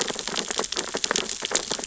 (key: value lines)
label: biophony, sea urchins (Echinidae)
recorder: SoundTrap 600 or HydroMoth